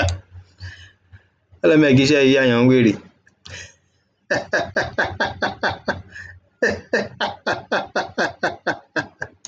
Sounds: Laughter